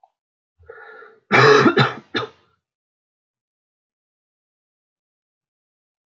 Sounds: Cough